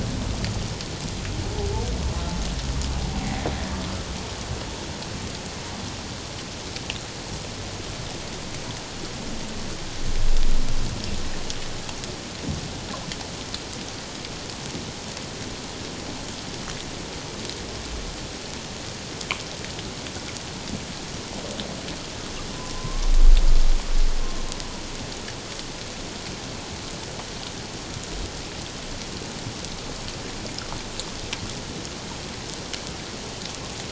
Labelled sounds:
3.1	3.5	humpback whale, 0.78 to 0.84 kHz
22.8	23.1	humpback whale, 0.97 to 1.2 kHz

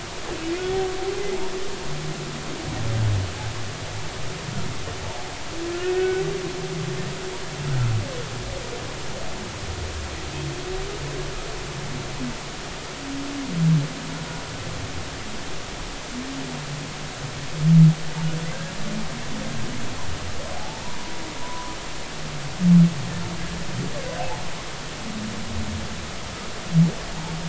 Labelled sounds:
5.7	6.2	humpback whale, 1.3 to 1.6 kHz
20.6	21.7	humpback whale, 0.80 to 1.1 kHz
24.2	24.4	humpback whale, 0.80 to 0.96 kHz

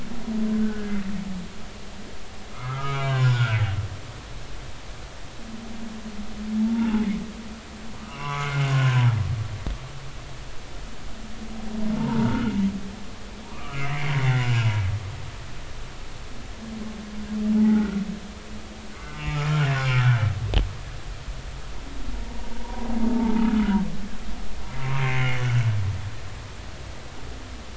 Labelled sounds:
0.5	0.9	humpback whale, 1.4 to 1.6 kHz
2.5	3.6	humpback whale, 0.96 to 7.1 kHz
6.7	7.0	humpback whale, 0.80 to 0.99 kHz
8.0	9.2	humpback whale, 0.90 to 3.0 kHz
11.9	12.5	humpback whale, 0.86 to 1.6 kHz
13.5	14.5	humpback whale, 0.90 to 2.8 kHz
17.6	18.0	humpback whale, 0.80 to 1.6 kHz
18.9	19.4	humpback whale, 1.2 to 2.2 kHz
19.9	20.2	humpback whale, 1.2 to 1.6 kHz
22.2	22.9	humpback whale, 0.86 to 1.1 kHz
25.0	25.4	humpback whale, 2.0 to 2.3 kHz

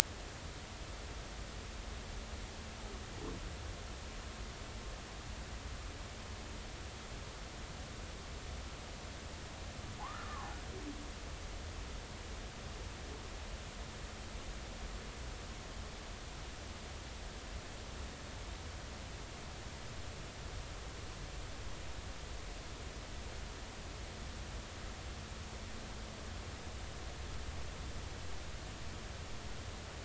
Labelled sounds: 10.0	10.5	humpback whale, 0.80 to 1.5 kHz

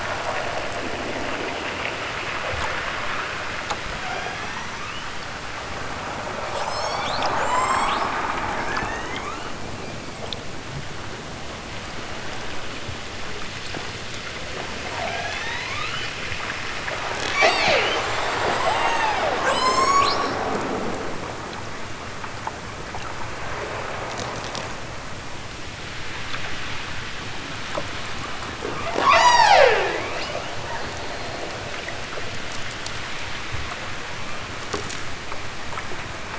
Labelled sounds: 4.1	5.1	killer whale, southern Alaska resident, 0.23 to 6.6 kHz
6.5	8.0	killer whale, southern Alaska resident, 1.6 to 8.0 kHz
8.6	9.6	killer whale, southern Alaska resident, 1.2 to 7.4 kHz
15.0	16.2	killer whale, southern Alaska resident, 0.41 to 7.7 kHz
17.2	18.0	killer whale, southern Alaska resident, 0.18 to 8.0 kHz
18.5	20.4	killer whale, southern Alaska resident, 0.09 to 8.0 kHz
29.0	30.4	killer whale, southern Alaska resident, 0.23 to 8.0 kHz

